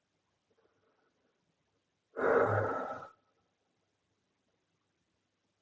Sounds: Sigh